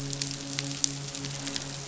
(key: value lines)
label: biophony, midshipman
recorder: SoundTrap 500